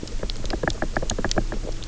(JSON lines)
{"label": "biophony, knock", "recorder": "SoundTrap 300"}